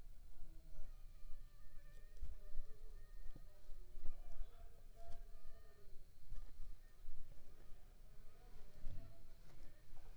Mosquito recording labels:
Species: Aedes aegypti; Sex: female; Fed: unfed; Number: one; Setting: cup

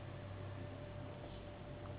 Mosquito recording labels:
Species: Anopheles gambiae s.s.; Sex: female; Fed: unfed; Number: one; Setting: insect culture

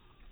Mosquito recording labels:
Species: mosquito; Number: one; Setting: cup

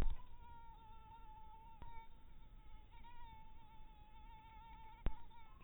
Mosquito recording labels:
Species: mosquito; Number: one; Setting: cup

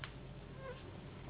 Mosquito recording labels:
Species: Anopheles gambiae s.s.; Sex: female; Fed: unfed; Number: one; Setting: insect culture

